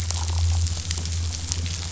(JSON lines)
{"label": "anthrophony, boat engine", "recorder": "SoundTrap 500"}